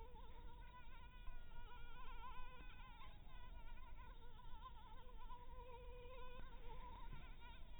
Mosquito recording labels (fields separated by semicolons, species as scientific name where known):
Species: Anopheles maculatus; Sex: female; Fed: blood-fed; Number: one; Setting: cup